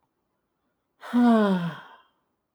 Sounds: Sigh